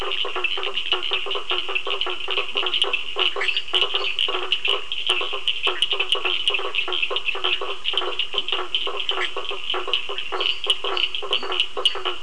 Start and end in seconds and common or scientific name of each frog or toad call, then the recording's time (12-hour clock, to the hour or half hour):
0.0	12.2	blacksmith tree frog
0.0	12.2	Cochran's lime tree frog
0.6	0.9	lesser tree frog
2.5	2.9	lesser tree frog
3.3	4.5	lesser tree frog
8.3	8.5	lesser tree frog
10.2	12.2	lesser tree frog
~8pm